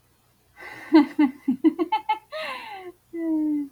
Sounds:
Laughter